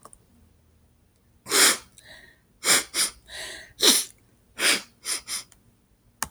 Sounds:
Sniff